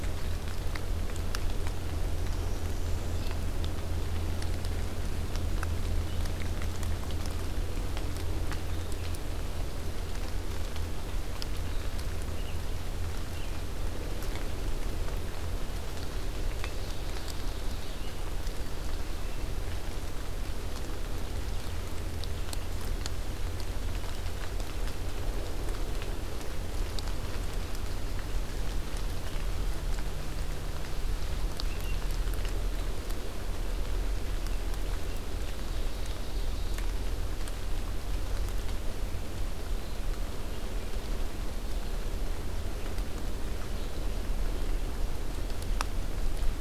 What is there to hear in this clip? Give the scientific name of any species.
Setophaga americana, Vireo olivaceus, Seiurus aurocapilla